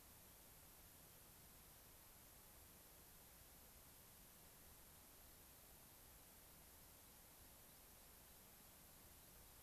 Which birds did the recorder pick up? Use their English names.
American Pipit